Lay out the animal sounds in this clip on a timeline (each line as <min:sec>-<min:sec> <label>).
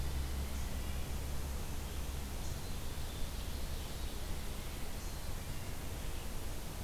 0:00.7-0:01.2 Red-breasted Nuthatch (Sitta canadensis)
0:02.2-0:03.2 Black-capped Chickadee (Poecile atricapillus)
0:05.0-0:05.9 Black-capped Chickadee (Poecile atricapillus)